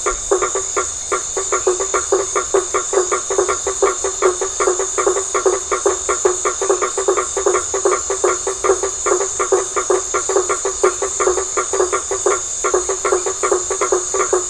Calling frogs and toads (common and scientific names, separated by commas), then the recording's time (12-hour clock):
blacksmith tree frog (Boana faber)
8:15pm